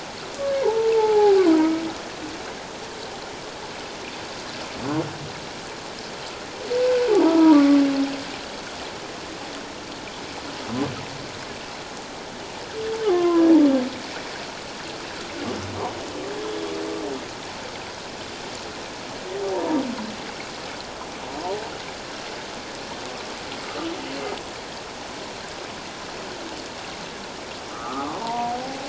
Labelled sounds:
0.6	1.7	humpback whale, 0.78 to 1.2 kHz
7.2	7.8	humpback whale, 0.88 to 1.3 kHz
13.0	13.5	humpback whale, 0.97 to 1.3 kHz
19.5	19.8	humpback whale, 0.88 to 1.0 kHz
27.7	28.8	humpback whale, 0.78 to 1.5 kHz

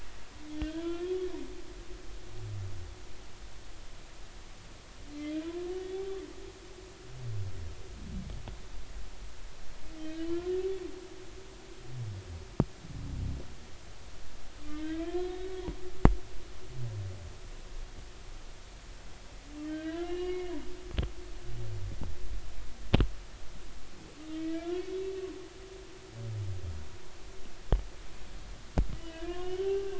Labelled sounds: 0.6	1.1	humpback whale, 1.3 to 3.6 kHz
5.4	5.7	humpback whale, 0.96 to 1.1 kHz
10.2	10.5	humpback whale, 1.3 to 3.2 kHz
14.6	15.8	humpback whale, 0.90 to 3.8 kHz
19.7	20.5	humpback whale, 1.0 to 3.2 kHz
24.3	25.1	humpback whale, 1.3 to 3.8 kHz
28.9	29.9	humpback whale, 0.80 to 3.1 kHz

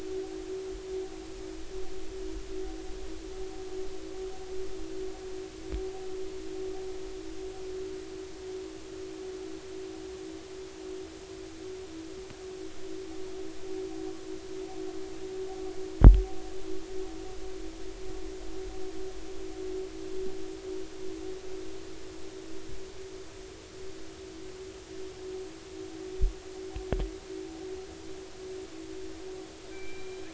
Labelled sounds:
29.7	30.2	killer whale, northern resident, 1.5 to 2.4 kHz

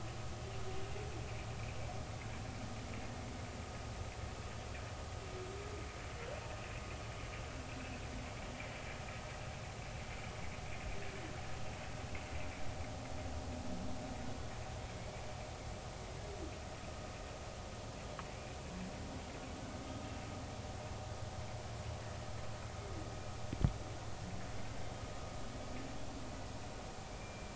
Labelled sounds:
27.2	27.5	humpback whale, 2.3 to 2.4 kHz

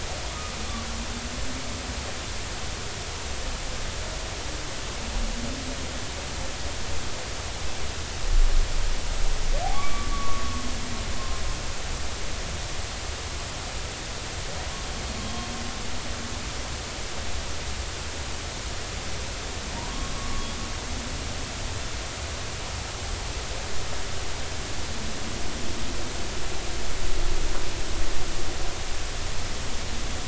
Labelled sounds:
9.7	10.4	humpback whale, 1.0 to 2.3 kHz
12.2	12.4	humpback whale, 1.0 to 1.1 kHz
20.2	20.5	humpback whale, 1.1 to 1.2 kHz

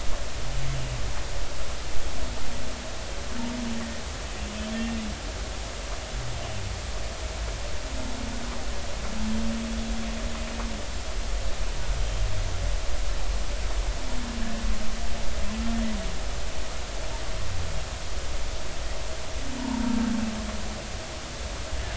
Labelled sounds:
3.8	4.0	humpback whale, 1.8 to 2.0 kHz
4.8	5.0	humpback whale, 2.7 to 2.8 kHz

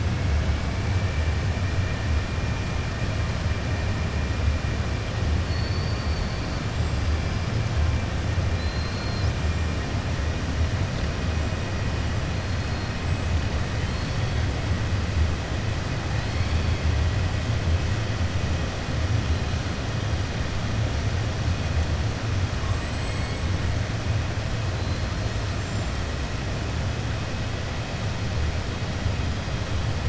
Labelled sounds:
8.5	9.3	killer whale, southern resident, 4.0 to 6.0 kHz
22.6	23.4	killer whale, southern resident, 7.5 to 7.9 kHz

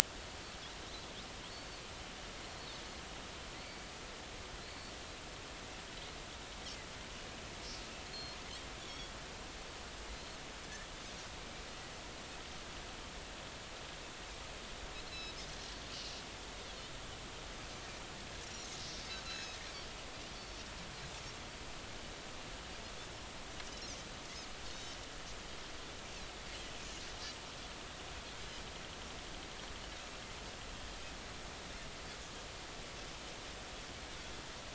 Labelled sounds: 1.5	1.8	Pacific white-sided dolphin, 4.3 to 4.6 kHz
4.6	4.9	Pacific white-sided dolphin, 4.0 to 4.6 kHz
8.1	8.4	Pacific white-sided dolphin, 4.2 to 4.4 kHz
8.8	9.1	Pacific white-sided dolphin, 3.2 to 3.5 kHz
15.1	15.4	Pacific white-sided dolphin, 3.8 to 4.1 kHz
16.5	16.8	Pacific white-sided dolphin, 3.2 to 3.8 kHz
19.2	19.6	Pacific white-sided dolphin, 2.5 to 5.4 kHz
24.7	25.0	Pacific white-sided dolphin, 5.9 to 6.2 kHz

